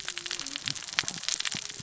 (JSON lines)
{"label": "biophony, cascading saw", "recorder": "SoundTrap 600 or HydroMoth"}